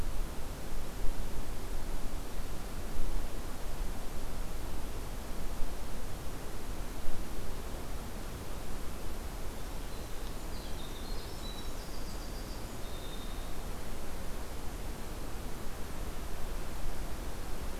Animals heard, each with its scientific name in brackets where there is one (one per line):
Winter Wren (Troglodytes hiemalis)